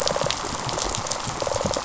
{"label": "biophony, rattle response", "recorder": "SoundTrap 500"}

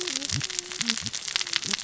{"label": "biophony, cascading saw", "recorder": "SoundTrap 600 or HydroMoth"}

